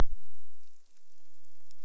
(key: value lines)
label: biophony
recorder: SoundTrap 300